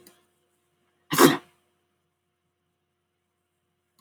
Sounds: Sneeze